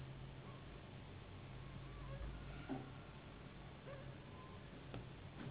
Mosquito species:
Anopheles gambiae s.s.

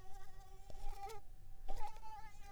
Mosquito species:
Mansonia uniformis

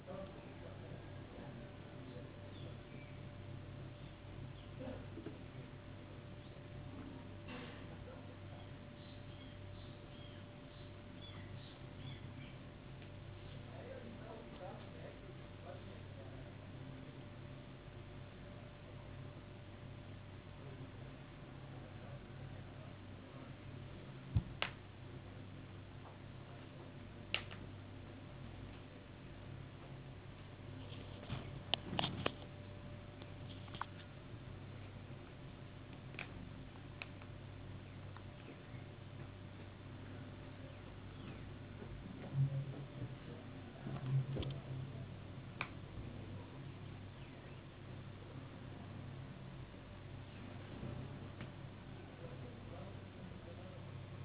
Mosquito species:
no mosquito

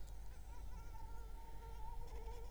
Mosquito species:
Anopheles arabiensis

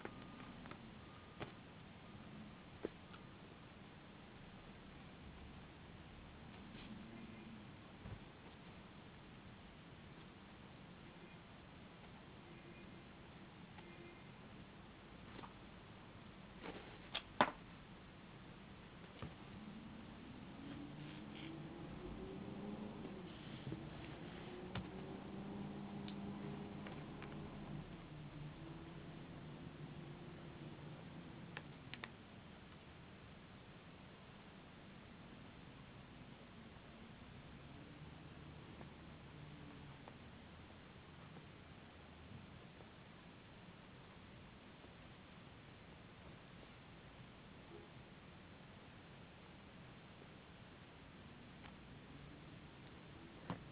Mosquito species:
no mosquito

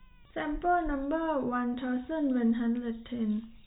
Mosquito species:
no mosquito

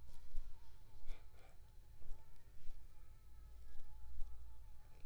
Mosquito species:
Aedes aegypti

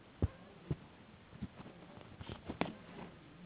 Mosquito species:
Anopheles gambiae s.s.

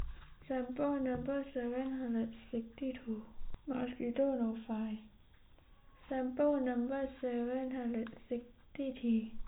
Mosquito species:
no mosquito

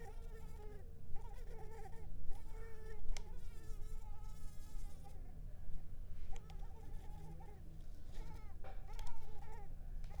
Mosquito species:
Mansonia uniformis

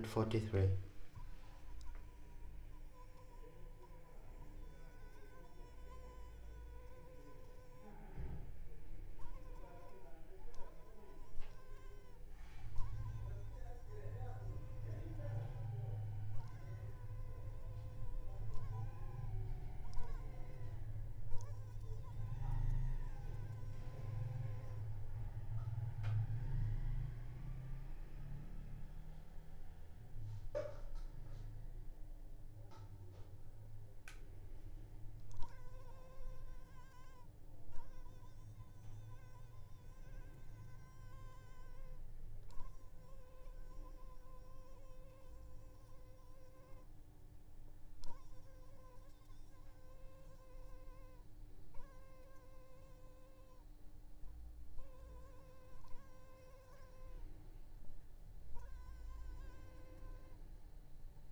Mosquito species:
Anopheles arabiensis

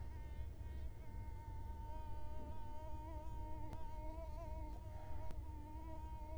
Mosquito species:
Culex quinquefasciatus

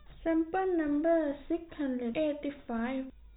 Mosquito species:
no mosquito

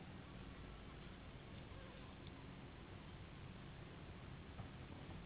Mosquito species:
Anopheles gambiae s.s.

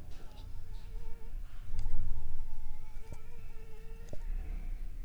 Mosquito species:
Anopheles arabiensis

